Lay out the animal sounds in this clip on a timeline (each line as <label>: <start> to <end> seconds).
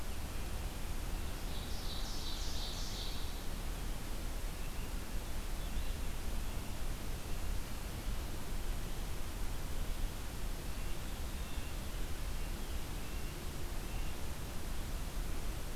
Ovenbird (Seiurus aurocapilla): 1.3 to 3.4 seconds
Blue Jay (Cyanocitta cristata): 11.1 to 11.9 seconds